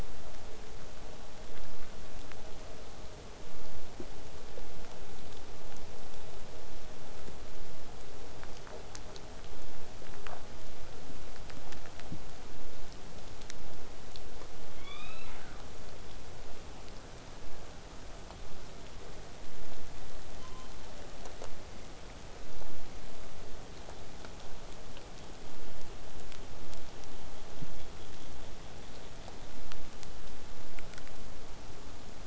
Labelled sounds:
19.7	21.1	killer whale, southern resident, 0.42 to 8.0 kHz

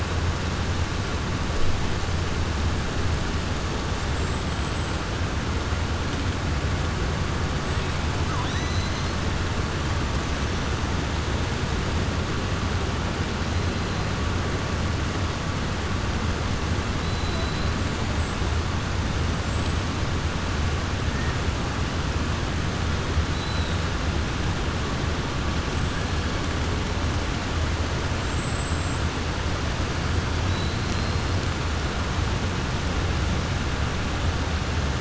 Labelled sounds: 4.0	5.0	killer whale, 7.2 to 8.0 kHz
8.2	9.2	killer whale, 0.99 to 6.3 kHz
17.0	17.7	killer whale, 3.9 to 4.4 kHz
19.4	19.9	killer whale, 7.2 to 8.0 kHz
23.3	23.8	killer whale, 3.6 to 4.1 kHz
28.2	29.1	killer whale, 7.3 to 7.8 kHz
30.4	31.3	killer whale, 3.9 to 5.8 kHz

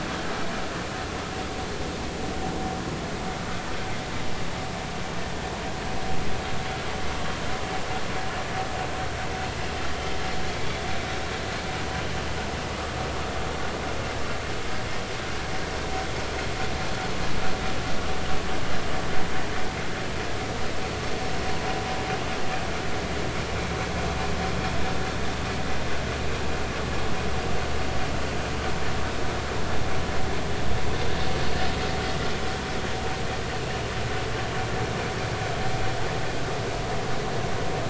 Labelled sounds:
10.6	10.9	vessel noise, 3.3 to 3.5 kHz

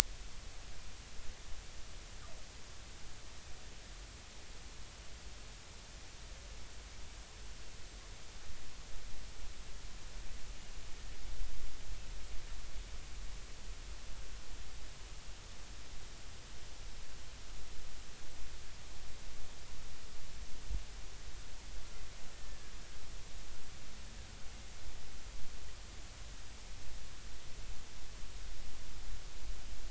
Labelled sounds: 22.3	22.7	killer whale, Bigg's (transient), 1.6 to 1.9 kHz

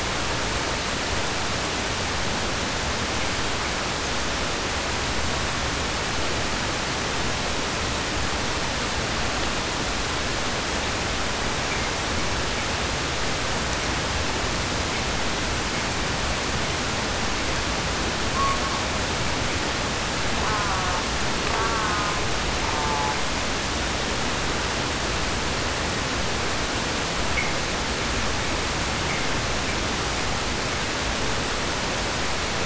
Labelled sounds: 18.2	18.9	killer whale, 0.56 to 4.7 kHz
20.3	21.1	killer whale, southern resident, 0.38 to 1.8 kHz
21.4	23.3	killer whale, southern resident, 0.26 to 1.7 kHz

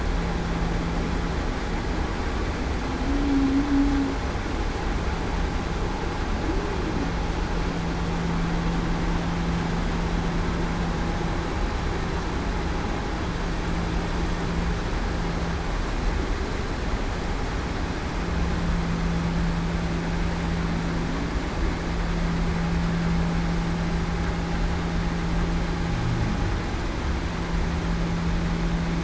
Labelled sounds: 3.0	3.7	humpback whale, 0.21 to 0.33 kHz

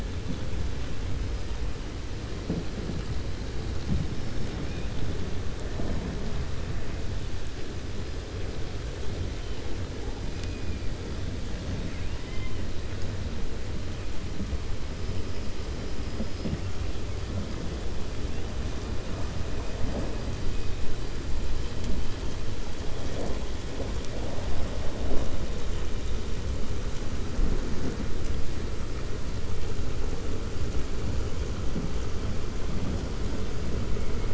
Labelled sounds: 4.5	4.9	killer whale, 1.9 to 3.5 kHz

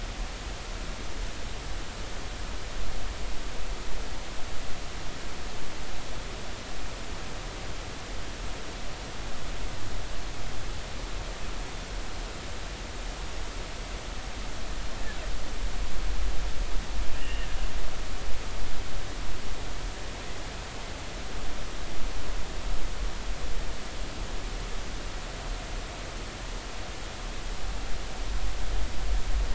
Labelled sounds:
17.1	17.5	humpback whale, 2.7 to 3.0 kHz

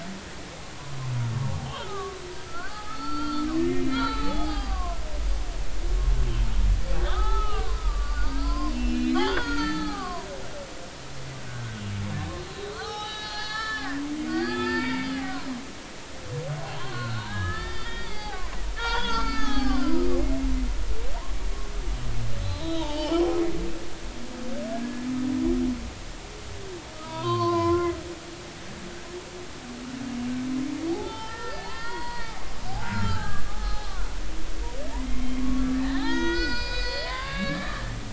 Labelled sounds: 1.6	2.2	humpback whale, 1.1 to 3.3 kHz
2.5	5.0	humpback whale, 0.80 to 5.2 kHz
7.1	11.8	humpback whale, 0.80 to 6.4 kHz
12.7	14.0	humpback whale, 0.80 to 6.0 kHz
14.3	15.6	humpback whale, 0.86 to 4.8 kHz
16.7	18.4	humpback whale, 0.80 to 5.0 kHz
18.8	20.5	humpback whale, 0.80 to 5.1 kHz
22.4	23.2	humpback whale, 0.83 to 4.8 kHz
24.7	25.1	humpback whale, 1.6 to 1.8 kHz
27.0	27.9	humpback whale, 0.90 to 4.6 kHz
30.9	33.9	humpback whale, 0.80 to 5.2 kHz
35.0	38.0	humpback whale, 0.80 to 6.4 kHz

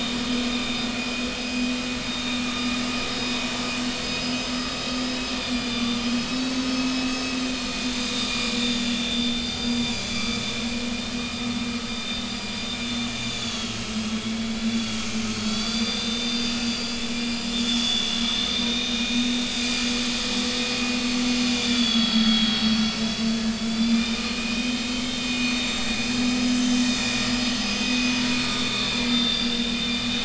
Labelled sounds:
0.6	2.4	vessel noise, 2.5 to 5.0 kHz
2.9	3.3	vessel noise, 3.7 to 5.1 kHz
4.0	10.4	vessel noise, 1.1 to 6.5 kHz
13.2	15.0	vessel noise, 3.1 to 4.8 kHz
15.3	20.4	vessel noise, 2.4 to 6.1 kHz
21.4	23.3	vessel noise, 2.3 to 5.1 kHz
23.6	25.9	vessel noise, 2.3 to 4.8 kHz
26.1	27.4	vessel noise, 3.4 to 7.4 kHz
27.8	28.1	vessel noise, 2.5 to 3.6 kHz
28.5	29.9	vessel noise, 2.0 to 4.9 kHz

